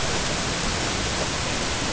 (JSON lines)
{"label": "ambient", "recorder": "HydroMoth"}